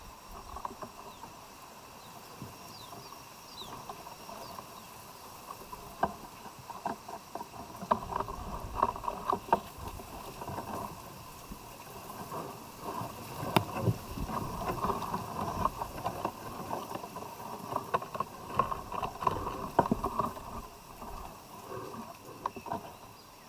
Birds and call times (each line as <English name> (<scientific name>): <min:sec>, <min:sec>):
Kikuyu White-eye (Zosterops kikuyuensis): 0:03.5